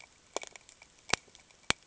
{"label": "ambient", "recorder": "HydroMoth"}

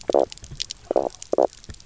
{"label": "biophony, knock croak", "recorder": "SoundTrap 300"}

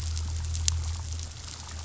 {"label": "anthrophony, boat engine", "recorder": "SoundTrap 500"}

